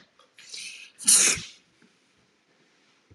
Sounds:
Sneeze